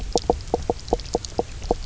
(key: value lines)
label: biophony, knock croak
recorder: SoundTrap 300